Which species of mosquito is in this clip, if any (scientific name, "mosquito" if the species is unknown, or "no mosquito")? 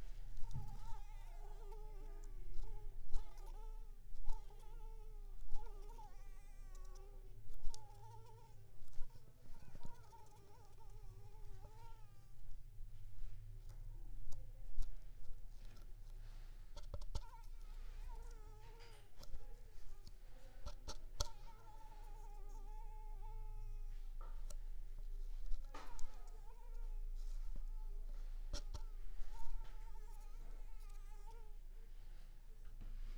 Anopheles coustani